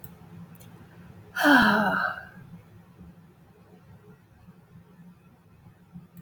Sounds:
Sigh